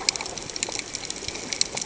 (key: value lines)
label: ambient
recorder: HydroMoth